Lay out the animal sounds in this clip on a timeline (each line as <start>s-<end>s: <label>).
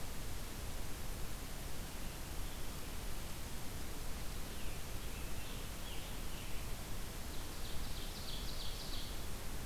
4.4s-6.8s: Scarlet Tanager (Piranga olivacea)
7.2s-9.2s: Ovenbird (Seiurus aurocapilla)